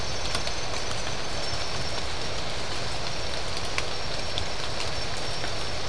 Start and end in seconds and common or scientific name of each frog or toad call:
none